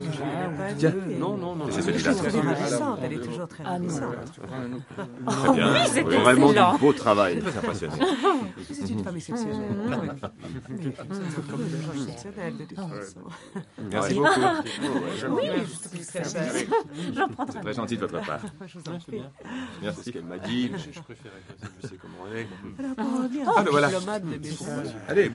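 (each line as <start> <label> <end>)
0.0 People talking nearby indoors. 25.3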